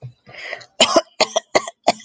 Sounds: Cough